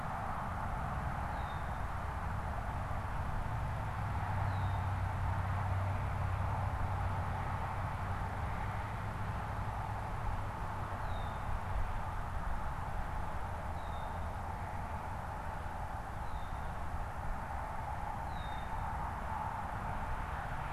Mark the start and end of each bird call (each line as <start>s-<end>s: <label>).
0.0s-20.7s: Red-winged Blackbird (Agelaius phoeniceus)